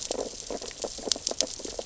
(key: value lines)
label: biophony, sea urchins (Echinidae)
recorder: SoundTrap 600 or HydroMoth